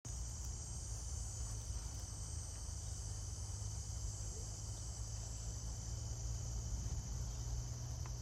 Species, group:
Neotibicen canicularis, Cicadidae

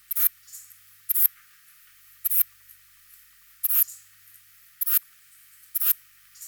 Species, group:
Ephippiger diurnus, Orthoptera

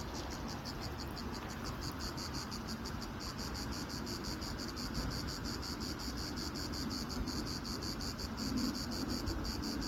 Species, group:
Cicada orni, Cicadidae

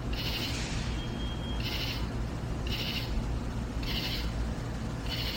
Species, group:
Pterophylla camellifolia, Orthoptera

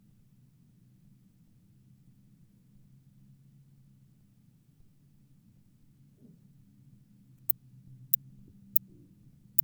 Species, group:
Tylopsis lilifolia, Orthoptera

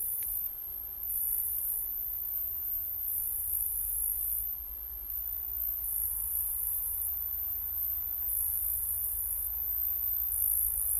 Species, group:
Cyphoderris monstrosa, Orthoptera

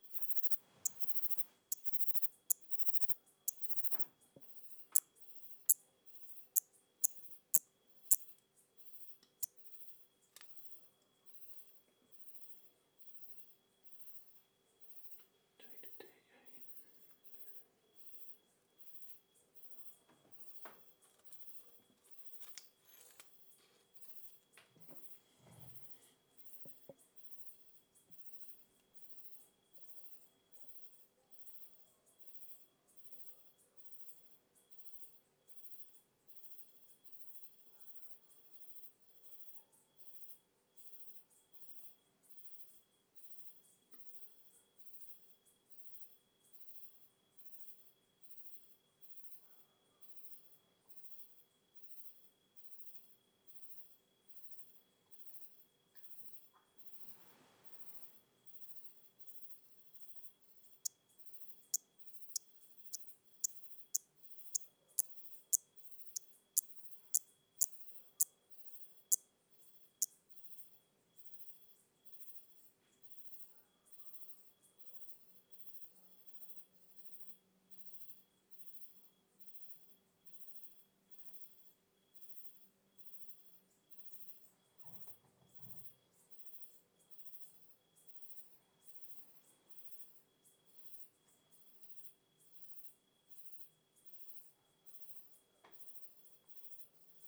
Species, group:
Eupholidoptera smyrnensis, Orthoptera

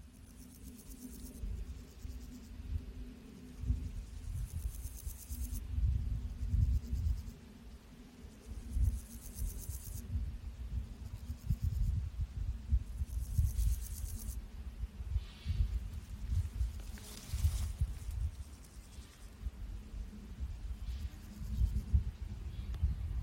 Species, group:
Pseudochorthippus parallelus, Orthoptera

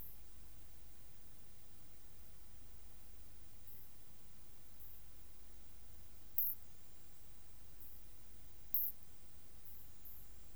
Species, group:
Isophya rhodopensis, Orthoptera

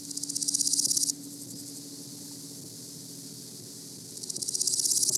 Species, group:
Chrysochraon dispar, Orthoptera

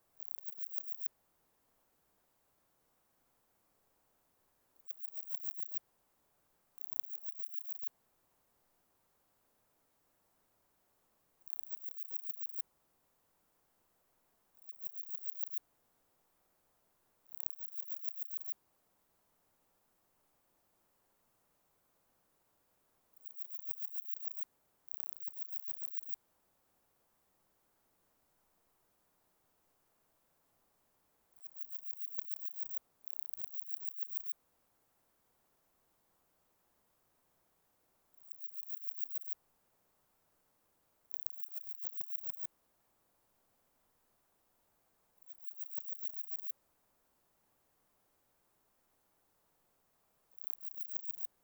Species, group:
Parnassiana gionica, Orthoptera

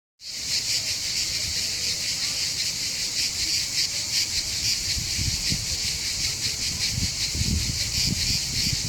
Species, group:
Cicada orni, Cicadidae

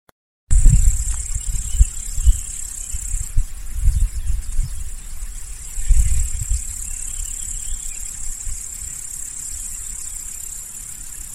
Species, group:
Tettigonia cantans, Orthoptera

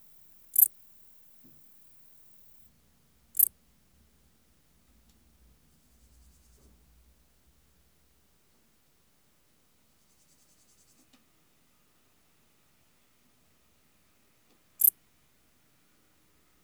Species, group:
Pholidoptera griseoaptera, Orthoptera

